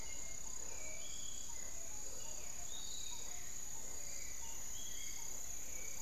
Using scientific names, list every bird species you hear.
Turdus hauxwelli, Legatus leucophaius, Penelope jacquacu